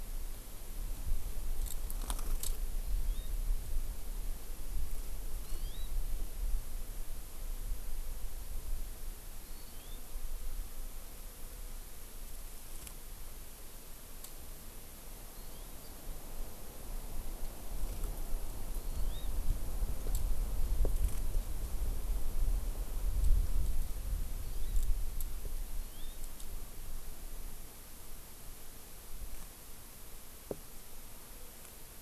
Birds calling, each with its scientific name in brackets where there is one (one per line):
Hawaii Amakihi (Chlorodrepanis virens)